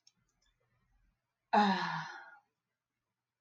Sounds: Sigh